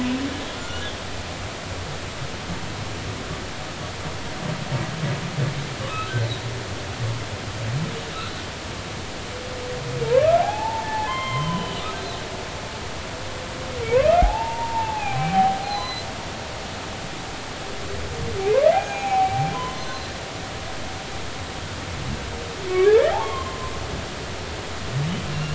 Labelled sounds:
0.5	0.9	humpback whale, 1.4 to 1.5 kHz
10.4	11.8	humpback whale, 0.80 to 4.3 kHz
14.2	16.1	humpback whale, 0.80 to 6.2 kHz
18.7	20.1	humpback whale, 0.80 to 6.7 kHz
22.7	23.7	humpback whale, 0.80 to 3.3 kHz

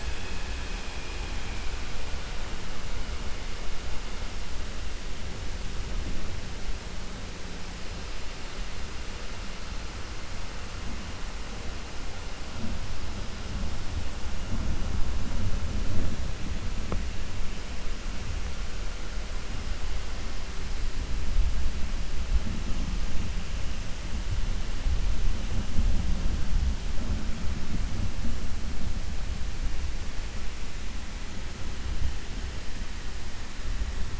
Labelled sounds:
0.9	1.6	vessel noise, 1.6 to 3.4 kHz

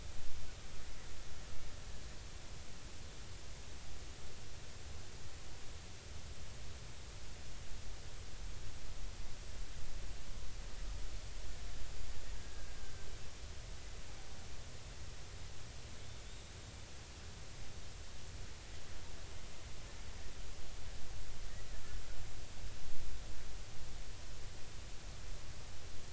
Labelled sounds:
12.3	13.1	killer whale, Bigg's (transient), 1.5 to 1.7 kHz

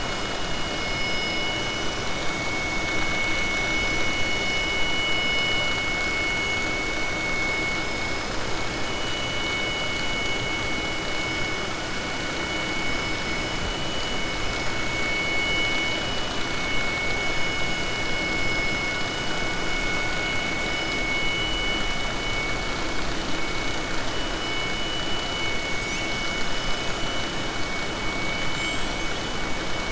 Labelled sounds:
28.4	29.1	killer whale, southern resident, 5.8 to 8.0 kHz

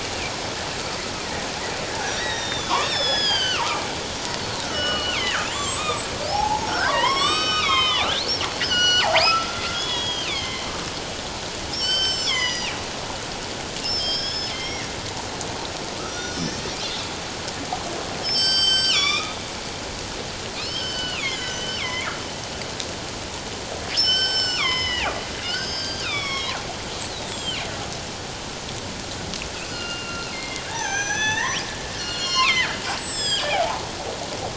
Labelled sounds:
2.2	3.8	killer whale, northern resident, G clan, 0.88 to 7.3 kHz
4.3	10.7	killer whale, northern resident, G clan, 0.78 to 8.0 kHz
11.7	12.7	killer whale, northern resident, G clan, 1.4 to 7.8 kHz
13.8	14.9	killer whale, northern resident, G clan, 1.6 to 5.4 kHz
16.0	16.7	killer whale, northern resident, G clan, 1.2 to 6.2 kHz
18.2	19.4	killer whale, northern resident, G clan, 1.1 to 7.9 kHz
20.6	22.1	killer whale, northern resident, G clan, 0.94 to 5.3 kHz
24.0	25.2	killer whale, northern resident, G clan, 0.97 to 7.7 kHz
25.4	27.6	killer whale, northern resident, G clan, 1.0 to 7.9 kHz
29.6	31.6	killer whale, northern resident, G clan, 0.78 to 6.3 kHz
32.0	33.8	killer whale, northern resident, G clan, 0.78 to 8.0 kHz

